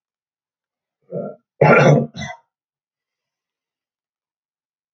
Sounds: Throat clearing